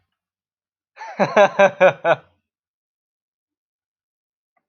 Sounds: Laughter